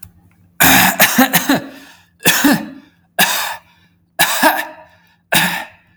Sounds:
Throat clearing